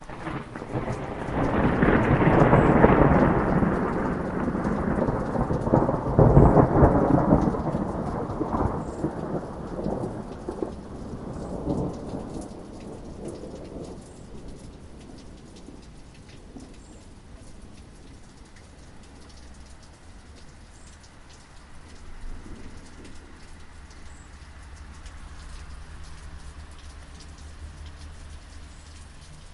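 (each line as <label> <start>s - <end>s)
Rolling thunder, occasional lightning strikes, and steady rainfall create a dramatic weather ambiance as rain hits surrounding surfaces. 0.0s - 12.0s
Steady rain with faint thunder from distant lightning. 12.0s - 29.5s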